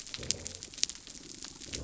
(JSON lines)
{"label": "biophony", "recorder": "SoundTrap 300"}